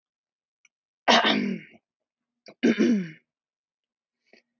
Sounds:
Throat clearing